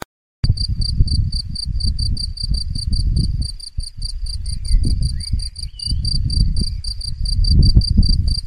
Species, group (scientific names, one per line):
Gryllus campestris
Orthoptera